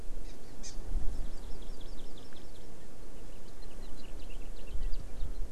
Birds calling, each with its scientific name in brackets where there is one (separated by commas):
Hawaii Amakihi (Chlorodrepanis virens), Eurasian Skylark (Alauda arvensis)